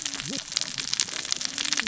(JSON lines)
{"label": "biophony, cascading saw", "recorder": "SoundTrap 600 or HydroMoth"}